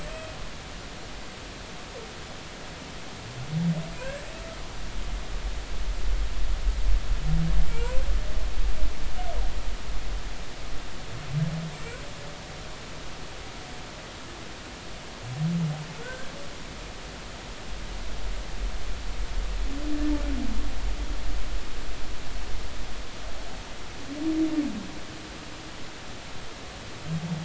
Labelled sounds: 0.1	0.3	humpback whale, 2.5 to 2.6 kHz
4.0	4.3	humpback whale, 1.5 to 1.8 kHz
7.7	8.0	humpback whale, 0.86 to 1.5 kHz
16.0	16.3	humpback whale, 1.4 to 1.7 kHz

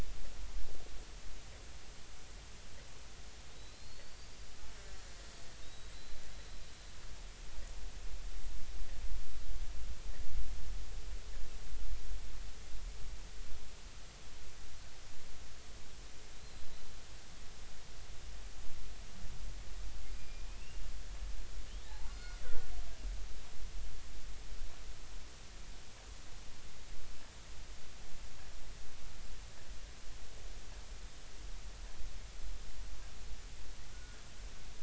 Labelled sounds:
3.6	4.4	killer whale, Bigg's (transient), 3.8 to 4.8 kHz
5.6	6.2	killer whale, Bigg's (transient), 3.6 to 4.1 kHz
20.1	20.5	killer whale, Bigg's (transient), 2.3 to 5.0 kHz
21.9	22.4	killer whale, Bigg's (transient), 0.80 to 1.5 kHz
33.9	34.2	killer whale, Bigg's (transient), 1.4 to 1.5 kHz

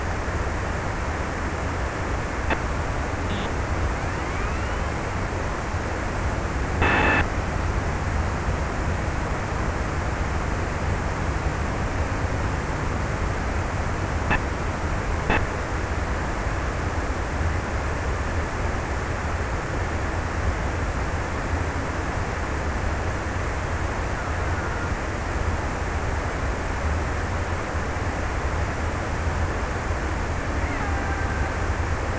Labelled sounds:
30.5	32.1	killer whale, Bigg's (transient), 0.34 to 2.0 kHz

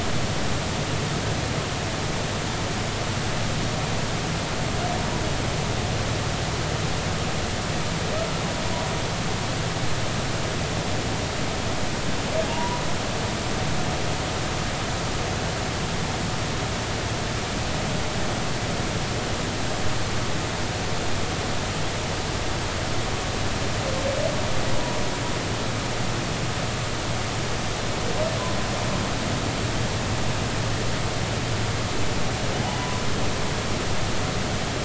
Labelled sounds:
12.5	12.8	humpback whale, 0.80 to 1.1 kHz
32.6	33.0	humpback whale, 0.80 to 1.1 kHz

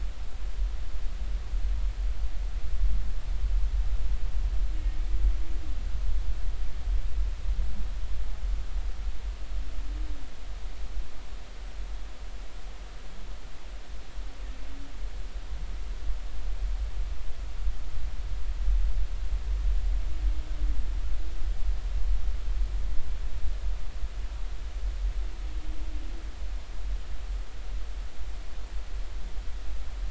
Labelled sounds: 4.7	5.0	humpback whale, 2.1 to 2.2 kHz

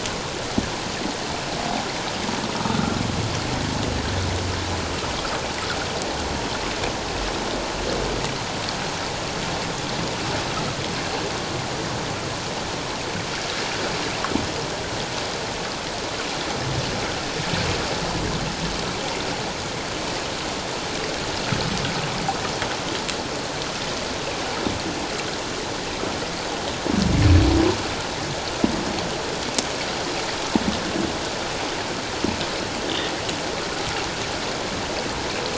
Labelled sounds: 2.6	3.0	humpback whale, 1.2 to 1.5 kHz

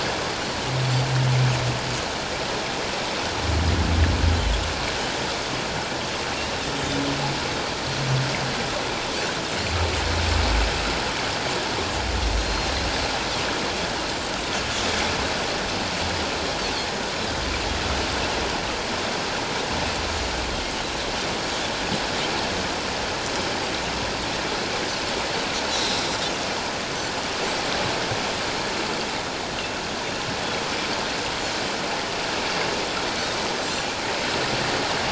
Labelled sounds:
12.4	12.7	Pacific white-sided dolphin, 4.1 to 4.3 kHz
30.4	30.6	Pacific white-sided dolphin, 3.2 to 3.5 kHz

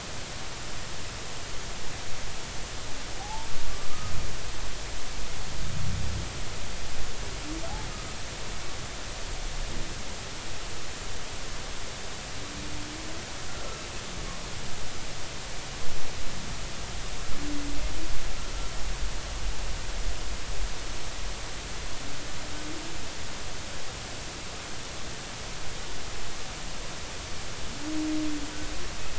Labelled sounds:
3.2	3.5	humpback whale, 0.80 to 0.96 kHz

